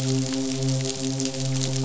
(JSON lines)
{"label": "biophony, midshipman", "recorder": "SoundTrap 500"}